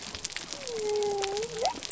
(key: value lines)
label: biophony
recorder: SoundTrap 300